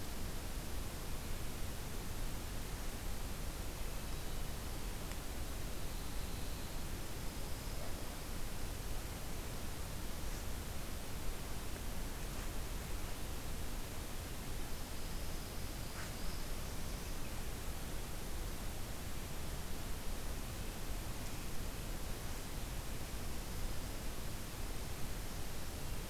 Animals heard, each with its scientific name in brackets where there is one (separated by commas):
Black-throated Blue Warbler (Setophaga caerulescens), Pine Warbler (Setophaga pinus)